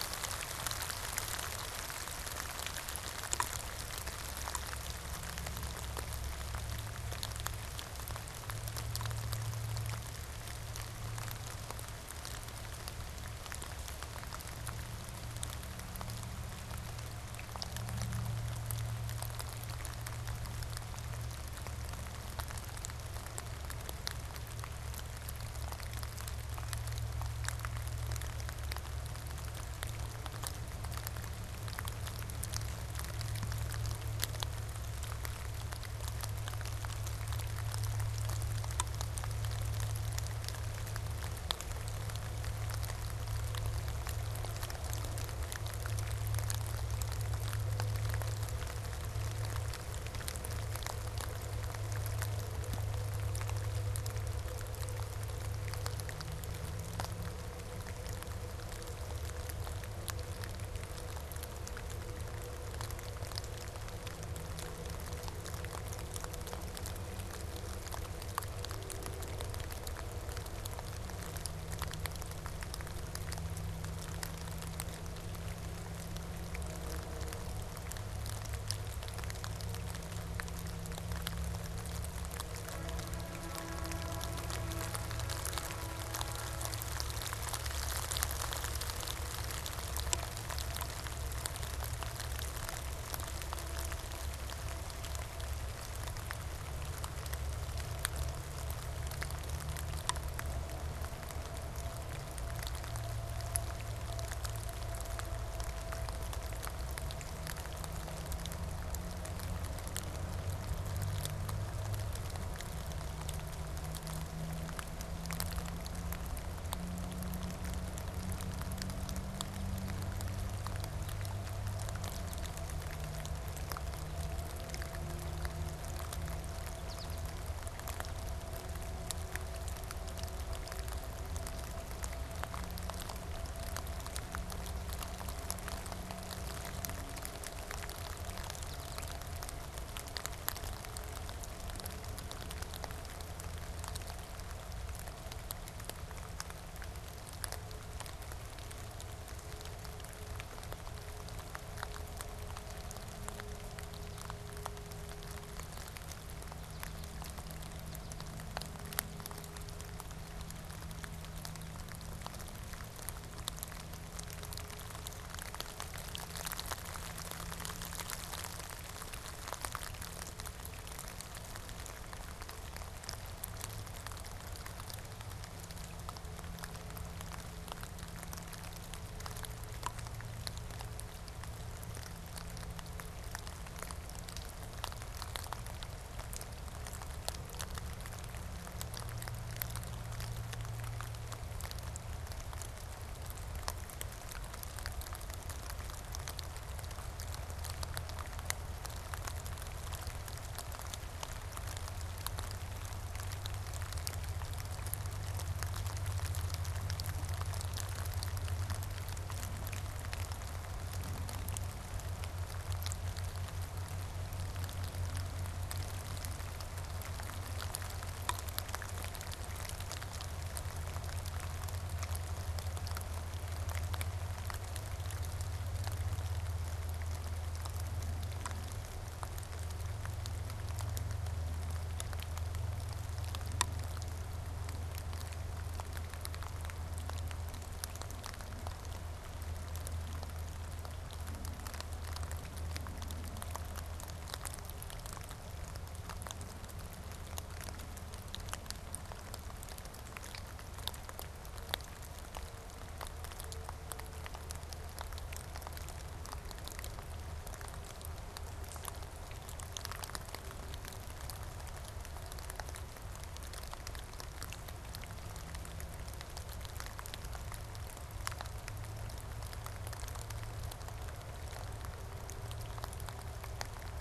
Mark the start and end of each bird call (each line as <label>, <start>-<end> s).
American Goldfinch (Spinus tristis), 126.6-127.3 s
American Goldfinch (Spinus tristis), 138.5-139.2 s
American Goldfinch (Spinus tristis), 156.5-157.2 s
American Goldfinch (Spinus tristis), 157.7-162.7 s